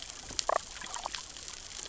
{"label": "biophony, damselfish", "recorder": "SoundTrap 600 or HydroMoth"}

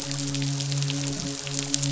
{"label": "biophony, midshipman", "recorder": "SoundTrap 500"}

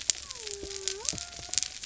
{"label": "biophony", "recorder": "SoundTrap 300"}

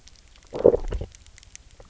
{"label": "biophony, low growl", "recorder": "SoundTrap 300"}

